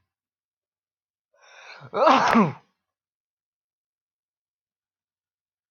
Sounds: Sneeze